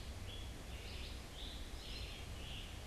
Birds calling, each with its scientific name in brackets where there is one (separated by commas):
Scarlet Tanager (Piranga olivacea), Red-eyed Vireo (Vireo olivaceus)